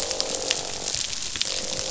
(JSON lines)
{"label": "biophony, croak", "recorder": "SoundTrap 500"}